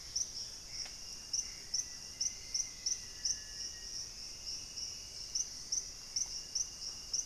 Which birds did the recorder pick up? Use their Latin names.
Cercomacra cinerascens, Pachysylvia hypoxantha, Formicarius analis, Momotus momota, Turdus hauxwelli